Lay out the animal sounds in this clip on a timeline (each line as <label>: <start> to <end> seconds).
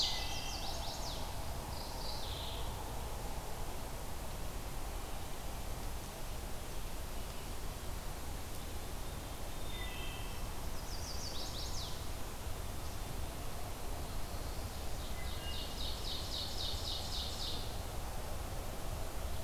Wood Thrush (Hylocichla mustelina): 0.0 to 0.8 seconds
Chestnut-sided Warbler (Setophaga pensylvanica): 0.0 to 1.3 seconds
Mourning Warbler (Geothlypis philadelphia): 1.7 to 2.8 seconds
Wood Thrush (Hylocichla mustelina): 9.3 to 10.8 seconds
Chestnut-sided Warbler (Setophaga pensylvanica): 10.5 to 12.0 seconds
Ovenbird (Seiurus aurocapilla): 14.6 to 17.9 seconds
Wood Thrush (Hylocichla mustelina): 15.0 to 15.7 seconds